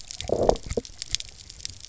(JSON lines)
{"label": "biophony, low growl", "recorder": "SoundTrap 300"}